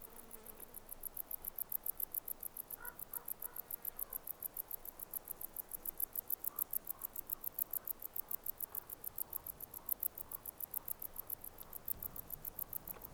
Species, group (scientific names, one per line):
Decticus verrucivorus
Orthoptera